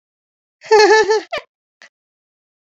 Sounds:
Laughter